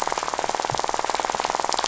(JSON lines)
{"label": "biophony, rattle", "recorder": "SoundTrap 500"}